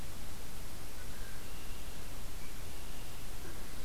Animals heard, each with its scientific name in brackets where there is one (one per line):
Red-winged Blackbird (Agelaius phoeniceus)